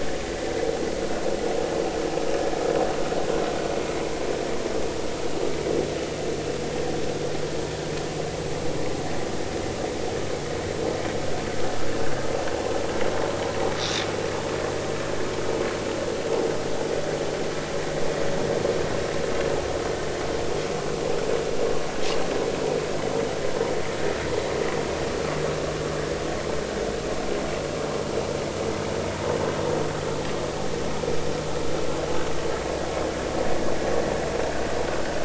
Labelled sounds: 13.8	14.1	vessel noise, 3.4 to 4.0 kHz

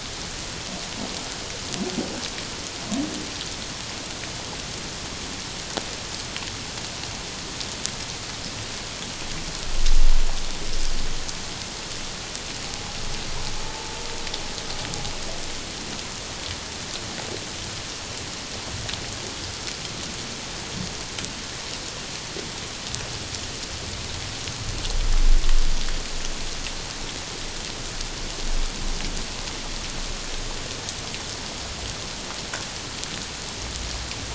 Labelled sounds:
13.6	14.0	humpback whale, 0.84 to 0.94 kHz

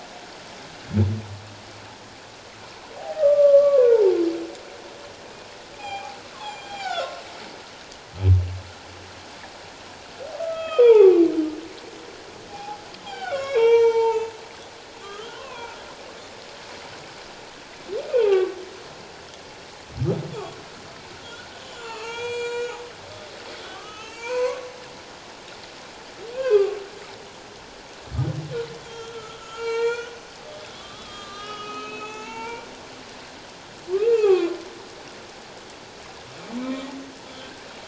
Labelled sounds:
2.9	4.2	humpback whale, 0.78 to 1.3 kHz
5.7	7.2	humpback whale, 0.78 to 7.4 kHz
10.3	11.3	humpback whale, 0.78 to 3.4 kHz
12.5	14.3	humpback whale, 0.78 to 7.3 kHz
15.0	15.8	humpback whale, 0.88 to 2.8 kHz
18.0	18.6	humpback whale, 0.78 to 2.6 kHz
21.2	22.7	humpback whale, 0.78 to 8.0 kHz
23.7	24.7	humpback whale, 0.88 to 3.2 kHz
26.3	26.8	humpback whale, 1.1 to 2.8 kHz
28.8	32.7	humpback whale, 0.78 to 7.6 kHz
33.9	34.6	humpback whale, 1.0 to 2.8 kHz
36.6	36.9	humpback whale, 2.2 to 2.4 kHz

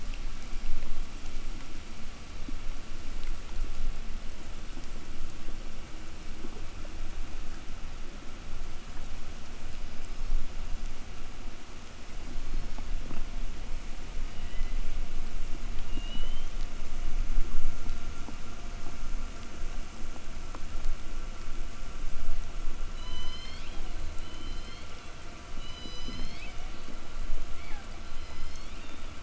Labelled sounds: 9.5	10.5	killer whale, southern resident, 3.5 to 6.4 kHz
12.1	13.1	killer whale, southern resident, 3.8 to 7.1 kHz
14.0	15.0	killer whale, southern resident, 1.5 to 5.2 kHz
15.6	16.6	killer whale, southern resident, 2.3 to 6.8 kHz
22.7	24.0	killer whale, southern resident, call S01, 0.65 to 6.8 kHz
24.0	25.1	killer whale, southern resident, 1.7 to 7.2 kHz
25.3	26.7	killer whale, southern resident, call S01, 1.6 to 7.8 kHz
27.3	29.2	killer whale, southern resident, 1.2 to 7.8 kHz

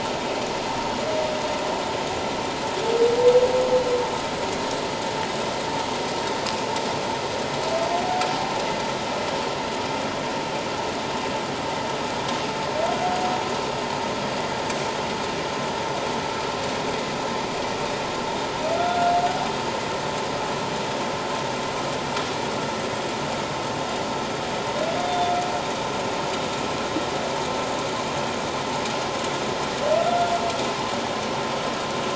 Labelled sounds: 18.8	19.1	humpback whale, 1.3 to 1.5 kHz
25.1	25.4	humpback whale, 3.5 to 3.6 kHz

